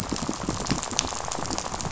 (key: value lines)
label: biophony, rattle
recorder: SoundTrap 500